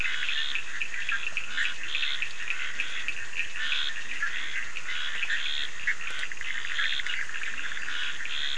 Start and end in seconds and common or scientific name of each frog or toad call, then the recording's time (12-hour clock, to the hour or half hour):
0.0	8.5	Bischoff's tree frog
0.0	8.5	Scinax perereca
0.0	8.5	Cochran's lime tree frog
1.1	4.3	Leptodactylus latrans
7.3	8.5	Leptodactylus latrans
~1am